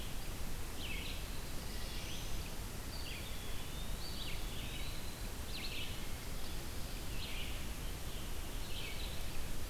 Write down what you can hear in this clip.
Red-eyed Vireo, Black-throated Blue Warbler, Wood Thrush, Eastern Wood-Pewee